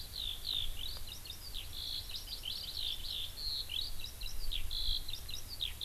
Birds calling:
Eurasian Skylark (Alauda arvensis)
Hawaii Amakihi (Chlorodrepanis virens)

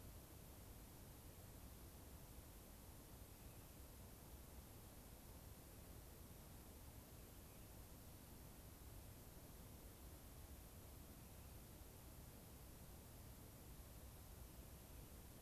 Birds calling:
Rock Wren (Salpinctes obsoletus)

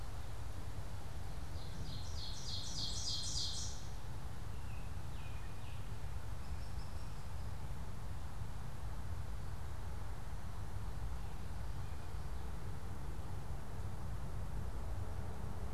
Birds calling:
Ovenbird (Seiurus aurocapilla)
Baltimore Oriole (Icterus galbula)

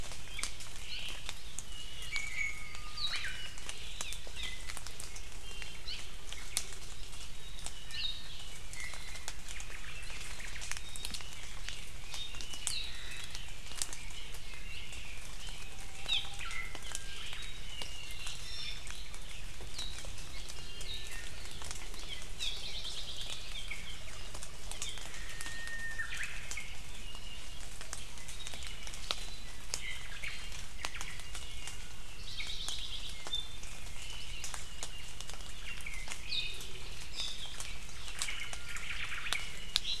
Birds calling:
Iiwi (Drepanis coccinea)
Red-billed Leiothrix (Leiothrix lutea)
Omao (Myadestes obscurus)
Apapane (Himatione sanguinea)
Japanese Bush Warbler (Horornis diphone)
Hawaii Amakihi (Chlorodrepanis virens)

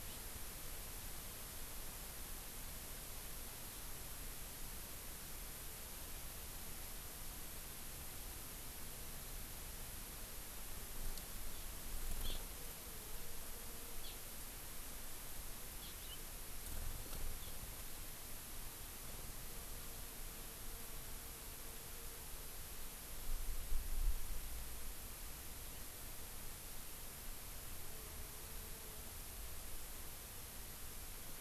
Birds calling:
Eurasian Skylark (Alauda arvensis)

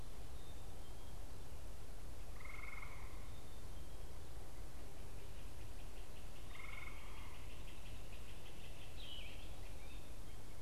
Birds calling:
Yellow-throated Vireo (Vireo flavifrons)
Great Crested Flycatcher (Myiarchus crinitus)

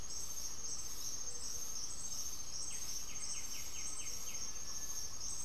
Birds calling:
Undulated Tinamou (Crypturellus undulatus)
White-winged Becard (Pachyramphus polychopterus)
Gray-fronted Dove (Leptotila rufaxilla)
Great Antshrike (Taraba major)

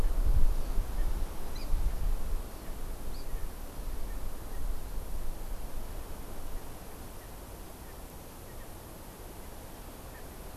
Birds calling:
Hawaii Amakihi (Chlorodrepanis virens)

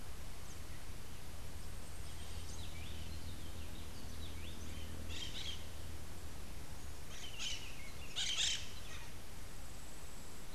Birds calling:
Crimson-fronted Parakeet (Psittacara finschi)

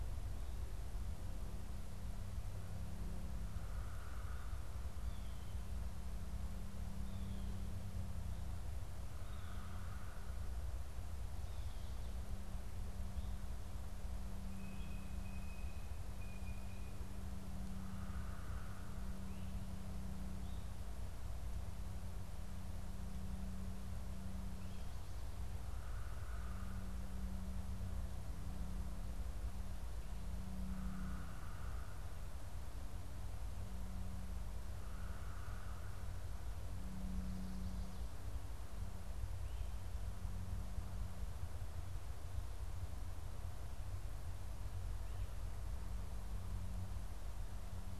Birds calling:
Blue Jay (Cyanocitta cristata)
unidentified bird

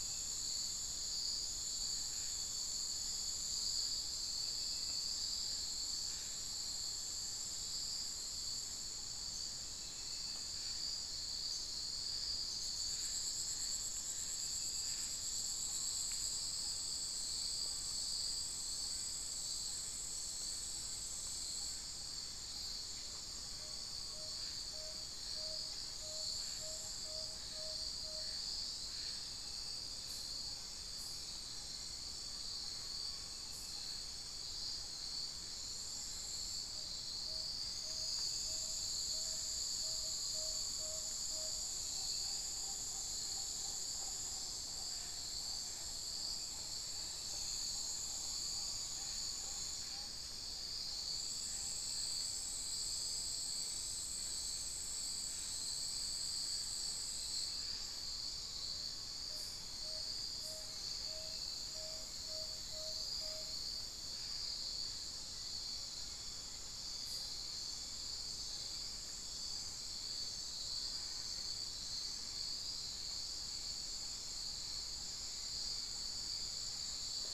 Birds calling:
Spix's Guan (Penelope jacquacu)
Tawny-bellied Screech-Owl (Megascops watsonii)
Amazonian Pygmy-Owl (Glaucidium hardyi)

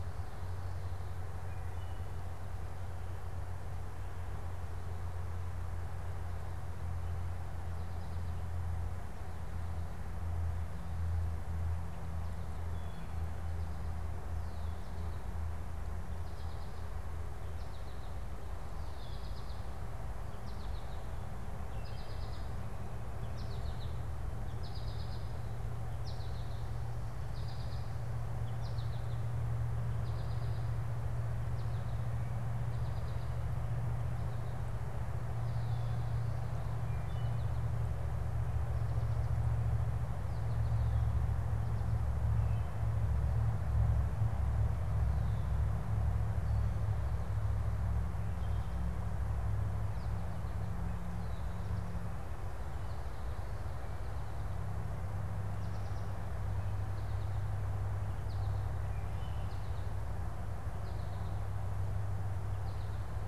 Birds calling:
unidentified bird
American Goldfinch (Spinus tristis)
Red-winged Blackbird (Agelaius phoeniceus)

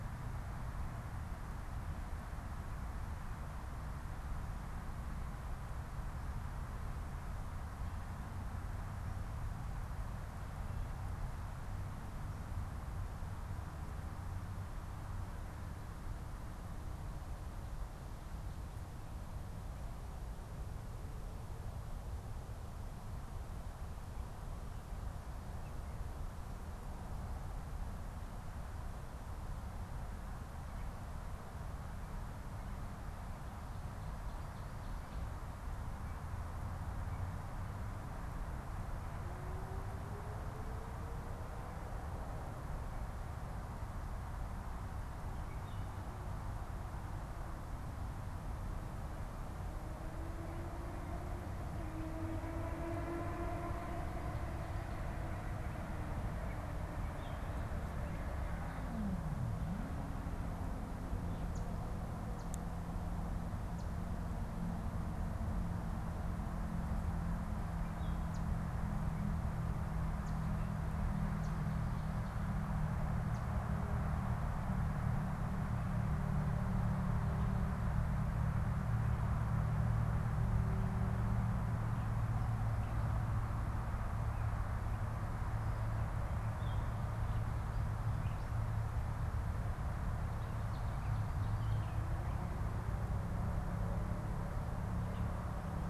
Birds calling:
unidentified bird
Gray Catbird (Dumetella carolinensis)

